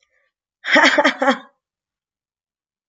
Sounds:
Laughter